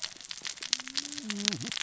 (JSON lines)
{"label": "biophony, cascading saw", "recorder": "SoundTrap 600 or HydroMoth"}